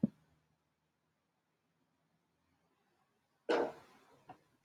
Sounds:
Cough